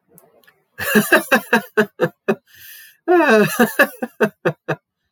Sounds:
Laughter